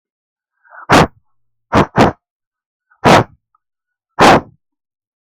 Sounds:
Sniff